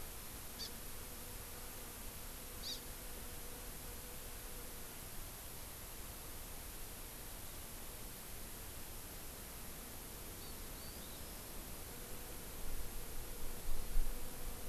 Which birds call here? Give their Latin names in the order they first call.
Chlorodrepanis virens